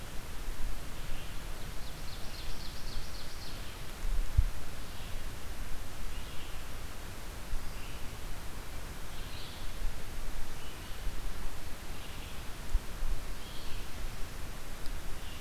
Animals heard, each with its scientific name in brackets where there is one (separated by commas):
Ovenbird (Seiurus aurocapilla), Red-eyed Vireo (Vireo olivaceus)